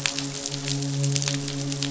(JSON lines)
{"label": "biophony, midshipman", "recorder": "SoundTrap 500"}